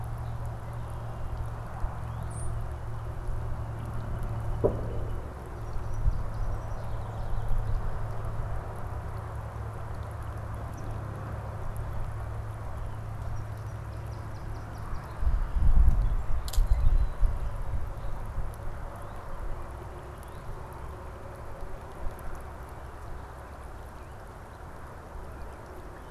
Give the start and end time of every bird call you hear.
1.9s-5.2s: Northern Cardinal (Cardinalis cardinalis)
2.1s-2.5s: Swamp Sparrow (Melospiza georgiana)
5.5s-7.8s: Song Sparrow (Melospiza melodia)
13.0s-15.4s: Song Sparrow (Melospiza melodia)
18.9s-20.6s: Northern Cardinal (Cardinalis cardinalis)

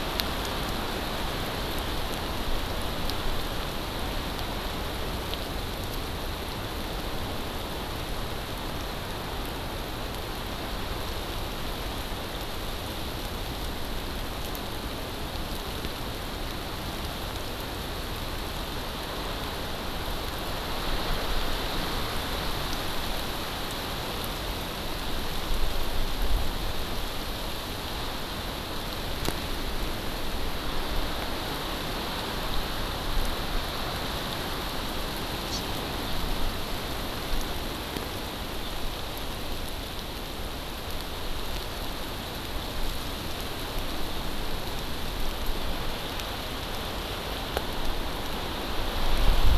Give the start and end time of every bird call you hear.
35.5s-35.6s: Hawaii Amakihi (Chlorodrepanis virens)

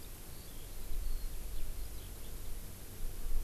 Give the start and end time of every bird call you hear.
0.0s-2.3s: Eurasian Skylark (Alauda arvensis)

